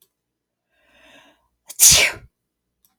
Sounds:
Sneeze